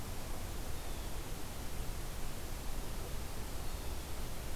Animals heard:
forest ambience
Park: Marsh-Billings-Rockefeller National Historical Park